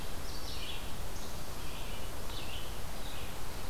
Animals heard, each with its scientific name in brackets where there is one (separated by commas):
Red-eyed Vireo (Vireo olivaceus)